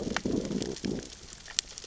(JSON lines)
{"label": "biophony, growl", "recorder": "SoundTrap 600 or HydroMoth"}